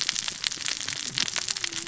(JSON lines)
{"label": "biophony, cascading saw", "recorder": "SoundTrap 600 or HydroMoth"}